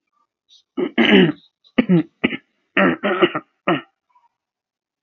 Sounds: Throat clearing